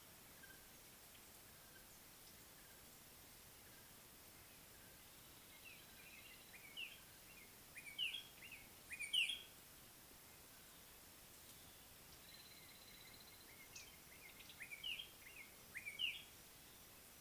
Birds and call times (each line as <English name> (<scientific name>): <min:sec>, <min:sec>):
White-browed Robin-Chat (Cossypha heuglini): 0:08.0, 0:14.8
African Thrush (Turdus pelios): 0:12.7
Red-faced Crombec (Sylvietta whytii): 0:13.7